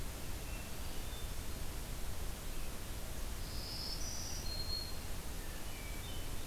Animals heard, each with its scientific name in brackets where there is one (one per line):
Red-eyed Vireo (Vireo olivaceus)
Hermit Thrush (Catharus guttatus)
Black-throated Green Warbler (Setophaga virens)